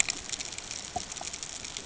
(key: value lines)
label: ambient
recorder: HydroMoth